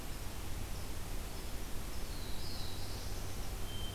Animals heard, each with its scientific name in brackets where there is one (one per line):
Black-throated Blue Warbler (Setophaga caerulescens)